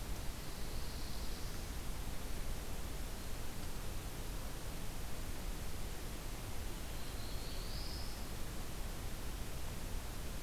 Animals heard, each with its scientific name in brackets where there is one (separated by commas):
Northern Parula (Setophaga americana), Black-throated Blue Warbler (Setophaga caerulescens)